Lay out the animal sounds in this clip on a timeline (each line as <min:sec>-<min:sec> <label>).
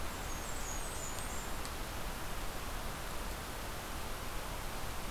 0:00.0-0:01.6 Blackburnian Warbler (Setophaga fusca)